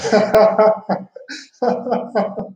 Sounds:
Laughter